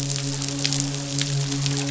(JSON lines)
{"label": "biophony, midshipman", "recorder": "SoundTrap 500"}